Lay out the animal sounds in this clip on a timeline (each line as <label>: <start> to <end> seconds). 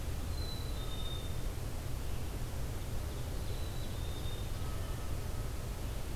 Black-capped Chickadee (Poecile atricapillus): 0.3 to 1.5 seconds
Ovenbird (Seiurus aurocapilla): 2.4 to 4.7 seconds
Black-capped Chickadee (Poecile atricapillus): 3.4 to 4.7 seconds